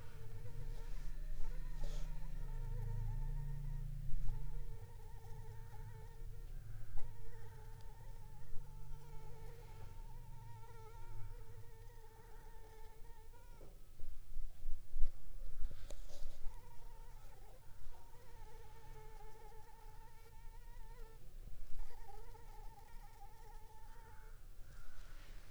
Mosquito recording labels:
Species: Anopheles gambiae s.l.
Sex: female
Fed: unfed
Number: one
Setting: cup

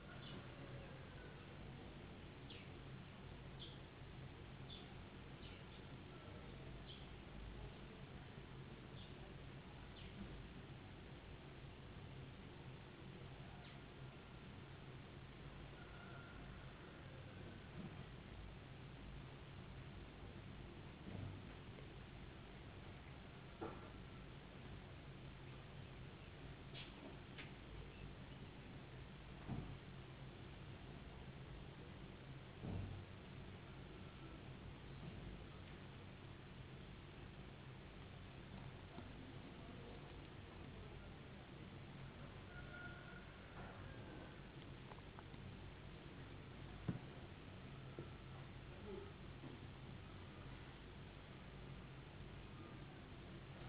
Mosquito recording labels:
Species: no mosquito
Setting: insect culture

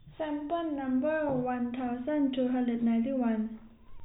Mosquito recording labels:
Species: no mosquito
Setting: cup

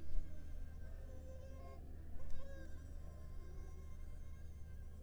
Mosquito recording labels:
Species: Anopheles arabiensis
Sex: female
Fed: unfed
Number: one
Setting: cup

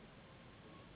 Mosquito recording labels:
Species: Anopheles gambiae s.s.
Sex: female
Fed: unfed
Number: one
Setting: insect culture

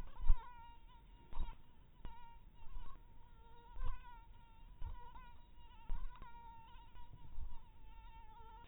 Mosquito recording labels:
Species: mosquito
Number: one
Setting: cup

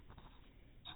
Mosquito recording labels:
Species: no mosquito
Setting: cup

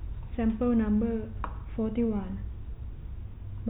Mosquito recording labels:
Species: no mosquito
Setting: cup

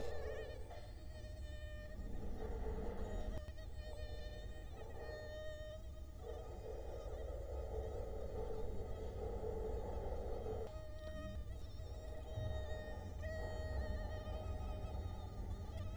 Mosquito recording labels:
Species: Culex quinquefasciatus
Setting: cup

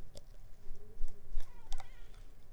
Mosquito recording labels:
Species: Mansonia africanus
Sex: female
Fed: unfed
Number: one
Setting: cup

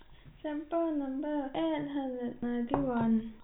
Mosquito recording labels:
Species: no mosquito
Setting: cup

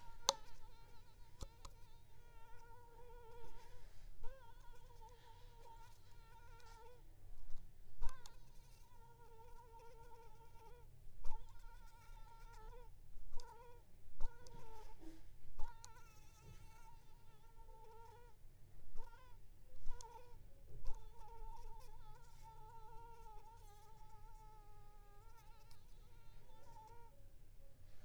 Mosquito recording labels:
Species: Anopheles arabiensis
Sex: female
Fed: unfed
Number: one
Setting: cup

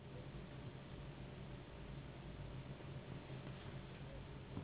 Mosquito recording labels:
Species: Anopheles gambiae s.s.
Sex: female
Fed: unfed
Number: one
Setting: insect culture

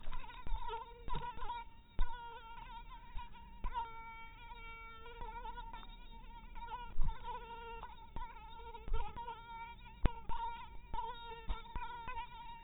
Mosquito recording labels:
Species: mosquito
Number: one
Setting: cup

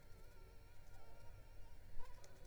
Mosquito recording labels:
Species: Anopheles arabiensis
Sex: female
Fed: unfed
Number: one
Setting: cup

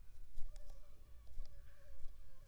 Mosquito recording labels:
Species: Aedes aegypti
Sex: female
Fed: unfed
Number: one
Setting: cup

